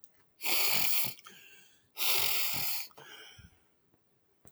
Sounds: Sniff